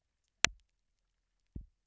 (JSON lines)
{"label": "biophony, double pulse", "recorder": "SoundTrap 300"}